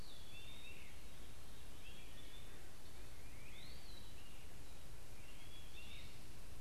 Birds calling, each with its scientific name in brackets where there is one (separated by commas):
Eastern Wood-Pewee (Contopus virens), Great Crested Flycatcher (Myiarchus crinitus)